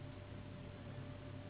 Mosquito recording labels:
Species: Anopheles gambiae s.s.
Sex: female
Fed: unfed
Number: one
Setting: insect culture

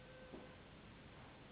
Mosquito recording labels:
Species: Anopheles gambiae s.s.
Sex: female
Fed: unfed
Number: one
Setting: insect culture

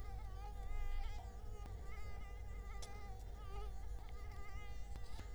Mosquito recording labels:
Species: Culex quinquefasciatus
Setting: cup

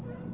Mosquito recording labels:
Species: Aedes albopictus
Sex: female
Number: one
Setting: insect culture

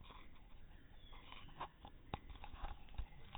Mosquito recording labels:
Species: no mosquito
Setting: cup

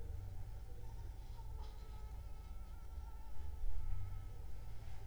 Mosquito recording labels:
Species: Anopheles arabiensis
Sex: female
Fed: unfed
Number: one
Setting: cup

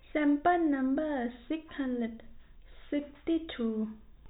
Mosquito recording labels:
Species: no mosquito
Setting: cup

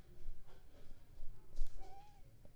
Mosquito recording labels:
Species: Anopheles arabiensis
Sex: female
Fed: unfed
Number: one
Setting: cup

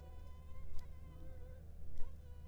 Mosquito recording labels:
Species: Anopheles arabiensis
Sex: female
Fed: unfed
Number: one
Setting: cup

